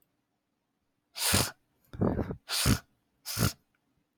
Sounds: Sniff